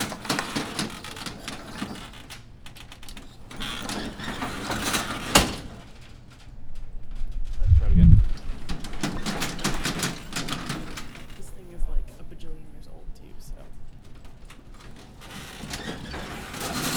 How many different people were talking?
two